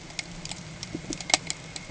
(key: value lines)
label: ambient
recorder: HydroMoth